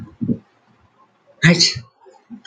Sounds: Sneeze